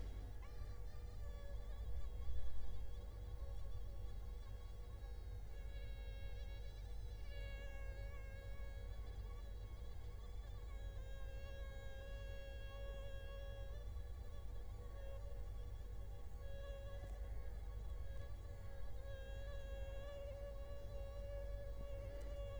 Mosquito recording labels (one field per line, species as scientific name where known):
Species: Culex quinquefasciatus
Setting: cup